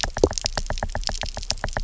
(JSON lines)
{"label": "biophony, knock", "recorder": "SoundTrap 300"}